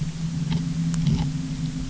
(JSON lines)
{"label": "anthrophony, boat engine", "recorder": "SoundTrap 300"}